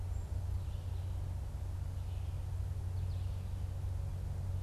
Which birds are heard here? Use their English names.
Black-capped Chickadee, Red-eyed Vireo